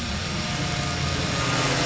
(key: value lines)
label: anthrophony, boat engine
recorder: SoundTrap 500